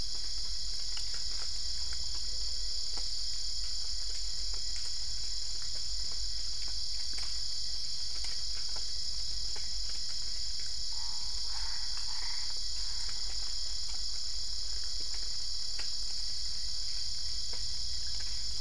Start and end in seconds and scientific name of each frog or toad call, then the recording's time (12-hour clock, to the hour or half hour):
10.7	14.3	Boana albopunctata
3:30am